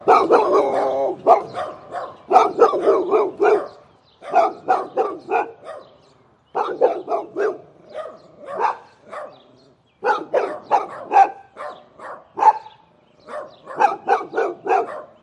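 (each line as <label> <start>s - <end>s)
A dog barks loudly and muffled outside in a repeating manner. 0.0s - 1.5s
Birds chirp repeatedly in the distance. 0.0s - 15.2s
A high-pitched dog barks repeatedly in the distance. 1.5s - 2.3s
A dog barks loudly and muffled outside in a repeating manner. 2.3s - 5.8s
A dog barks loudly and muffled outside in a repeating manner. 6.5s - 7.6s
A high-pitched dog barks repeatedly in the distance. 7.9s - 9.3s
A dog barks loudly and muffled repeatedly outside. 10.0s - 11.4s
A high-pitched dog barks repeatedly in the distance. 11.5s - 12.2s
A dog barks loudly and muffled once outside. 12.3s - 12.7s
A dog barks once in the distance. 13.2s - 13.6s
A dog barks loudly and muffled outside in a repeating manner. 13.7s - 15.0s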